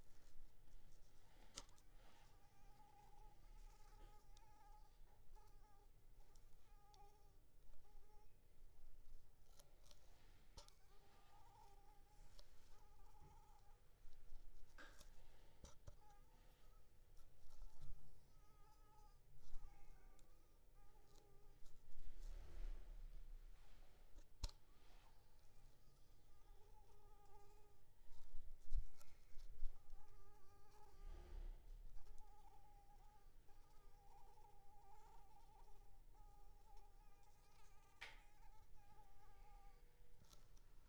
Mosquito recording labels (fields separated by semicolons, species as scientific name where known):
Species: Anopheles arabiensis; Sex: female; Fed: unfed; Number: one; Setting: cup